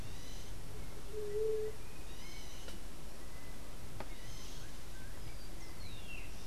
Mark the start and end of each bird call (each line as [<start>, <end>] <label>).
[0.00, 6.46] unidentified bird
[0.69, 1.79] White-tipped Dove (Leptotila verreauxi)